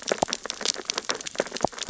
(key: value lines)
label: biophony, sea urchins (Echinidae)
recorder: SoundTrap 600 or HydroMoth